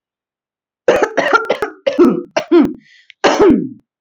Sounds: Cough